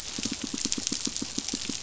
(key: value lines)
label: biophony, pulse
recorder: SoundTrap 500